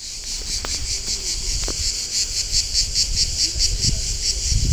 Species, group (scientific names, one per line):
Cicada orni
Cicadidae